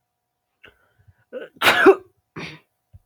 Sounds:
Sneeze